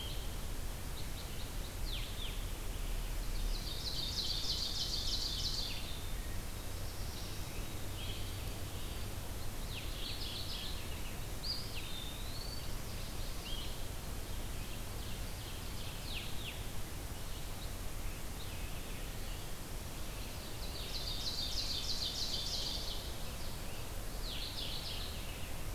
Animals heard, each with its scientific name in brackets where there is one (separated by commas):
Ovenbird (Seiurus aurocapilla), Blue-headed Vireo (Vireo solitarius), Mourning Warbler (Geothlypis philadelphia), Black-throated Blue Warbler (Setophaga caerulescens), Eastern Wood-Pewee (Contopus virens)